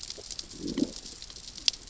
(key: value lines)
label: biophony, growl
recorder: SoundTrap 600 or HydroMoth